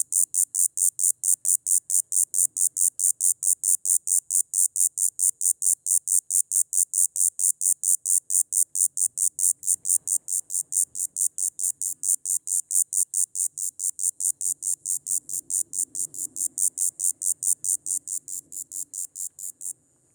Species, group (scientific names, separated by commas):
Diceroprocta texana, Cicadidae